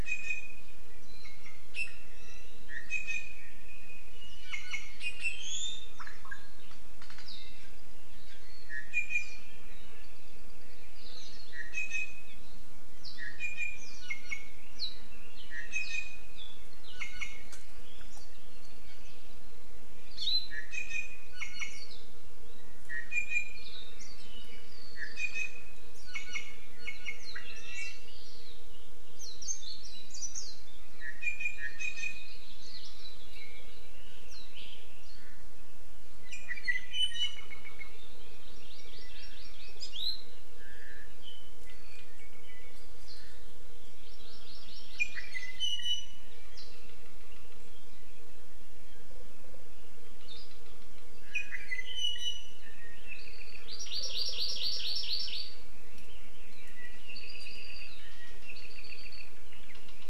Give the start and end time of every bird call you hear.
[0.03, 0.72] Apapane (Himatione sanguinea)
[1.23, 1.62] Apapane (Himatione sanguinea)
[2.73, 3.42] Apapane (Himatione sanguinea)
[4.42, 6.03] Apapane (Himatione sanguinea)
[8.62, 9.43] Apapane (Himatione sanguinea)
[11.53, 12.43] Apapane (Himatione sanguinea)
[13.22, 14.53] Apapane (Himatione sanguinea)
[15.53, 16.32] Apapane (Himatione sanguinea)
[16.93, 17.52] Apapane (Himatione sanguinea)
[20.52, 21.93] Apapane (Himatione sanguinea)
[22.82, 23.73] Apapane (Himatione sanguinea)
[25.12, 28.12] Apapane (Himatione sanguinea)
[31.02, 32.42] Apapane (Himatione sanguinea)
[36.23, 37.52] Apapane (Himatione sanguinea)
[38.33, 39.73] Hawaii Amakihi (Chlorodrepanis virens)
[44.02, 45.62] Hawaii Amakihi (Chlorodrepanis virens)
[45.02, 46.42] Apapane (Himatione sanguinea)
[51.23, 52.73] Apapane (Himatione sanguinea)
[53.02, 53.73] Apapane (Himatione sanguinea)
[53.73, 55.62] Hawaii Amakihi (Chlorodrepanis virens)
[57.02, 58.02] Apapane (Himatione sanguinea)
[58.42, 59.33] Apapane (Himatione sanguinea)

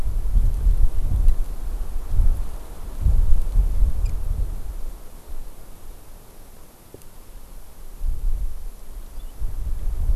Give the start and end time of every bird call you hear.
[9.20, 9.30] House Finch (Haemorhous mexicanus)

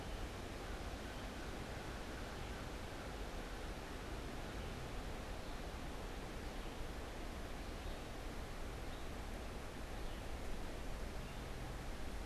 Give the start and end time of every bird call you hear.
[0.00, 1.52] Red-eyed Vireo (Vireo olivaceus)
[0.42, 3.12] American Crow (Corvus brachyrhynchos)
[4.32, 12.26] Red-eyed Vireo (Vireo olivaceus)

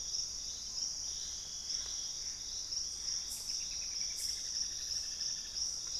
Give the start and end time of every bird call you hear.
[0.00, 6.00] Purple-throated Fruitcrow (Querula purpurata)
[1.00, 6.00] Gray Antbird (Cercomacra cinerascens)
[2.90, 5.70] Straight-billed Woodcreeper (Dendroplex picus)

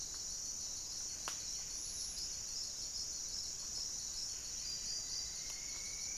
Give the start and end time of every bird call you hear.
[0.00, 6.17] Buff-breasted Wren (Cantorchilus leucotis)
[5.02, 6.17] Striped Woodcreeper (Xiphorhynchus obsoletus)

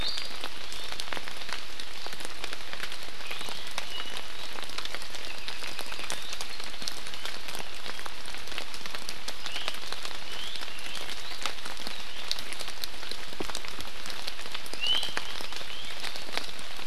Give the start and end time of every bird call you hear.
[0.00, 0.40] Iiwi (Drepanis coccinea)
[0.70, 1.00] Iiwi (Drepanis coccinea)
[3.80, 4.20] Iiwi (Drepanis coccinea)
[5.10, 6.30] Apapane (Himatione sanguinea)
[9.50, 9.70] Iiwi (Drepanis coccinea)
[10.20, 11.00] Iiwi (Drepanis coccinea)
[14.80, 15.10] Iiwi (Drepanis coccinea)

